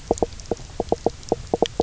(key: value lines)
label: biophony, knock croak
recorder: SoundTrap 300